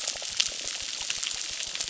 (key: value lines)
label: biophony, crackle
recorder: SoundTrap 600